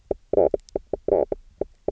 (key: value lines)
label: biophony, knock croak
recorder: SoundTrap 300